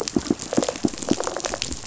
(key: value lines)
label: biophony, rattle response
recorder: SoundTrap 500